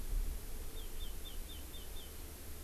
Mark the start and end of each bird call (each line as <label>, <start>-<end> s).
Chinese Hwamei (Garrulax canorus), 0.7-2.1 s